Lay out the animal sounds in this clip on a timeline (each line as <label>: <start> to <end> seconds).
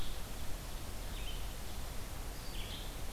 Red-eyed Vireo (Vireo olivaceus): 0.9 to 3.1 seconds